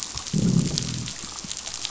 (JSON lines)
{"label": "biophony, growl", "recorder": "SoundTrap 500"}